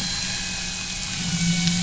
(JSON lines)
{"label": "anthrophony, boat engine", "recorder": "SoundTrap 500"}